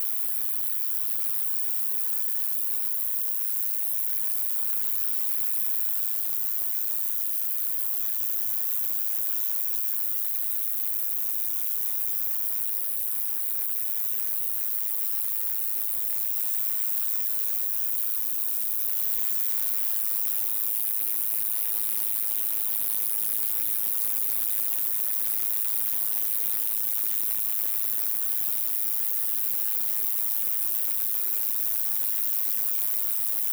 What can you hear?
Roeseliana ambitiosa, an orthopteran